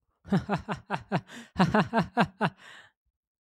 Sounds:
Laughter